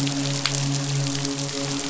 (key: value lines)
label: biophony, midshipman
recorder: SoundTrap 500